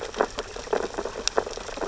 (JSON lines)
{"label": "biophony, sea urchins (Echinidae)", "recorder": "SoundTrap 600 or HydroMoth"}